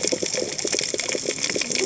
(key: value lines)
label: biophony, cascading saw
recorder: HydroMoth